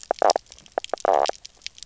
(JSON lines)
{"label": "biophony, knock croak", "recorder": "SoundTrap 300"}